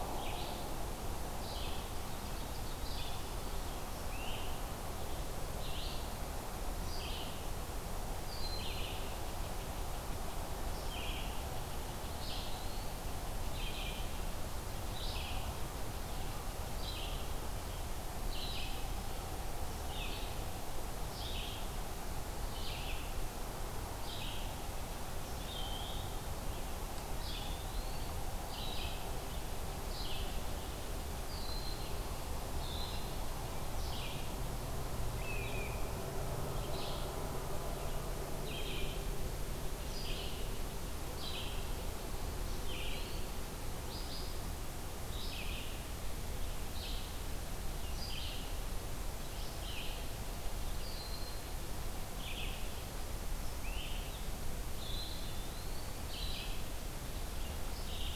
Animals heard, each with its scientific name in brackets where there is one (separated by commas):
Eastern Wood-Pewee (Contopus virens), Ovenbird (Seiurus aurocapilla), Blue Jay (Cyanocitta cristata), Broad-winged Hawk (Buteo platypterus), Red-eyed Vireo (Vireo olivaceus), Great Crested Flycatcher (Myiarchus crinitus)